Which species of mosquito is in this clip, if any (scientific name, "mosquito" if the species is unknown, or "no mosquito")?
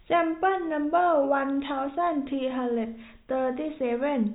no mosquito